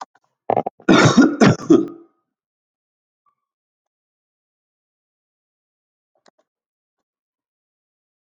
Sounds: Cough